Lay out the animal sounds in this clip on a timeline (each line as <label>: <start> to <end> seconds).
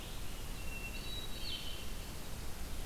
Blue-headed Vireo (Vireo solitarius): 0.0 to 2.9 seconds
Hermit Thrush (Catharus guttatus): 0.2 to 1.5 seconds